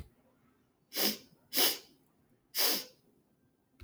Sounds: Sniff